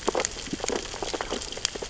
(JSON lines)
{"label": "biophony, sea urchins (Echinidae)", "recorder": "SoundTrap 600 or HydroMoth"}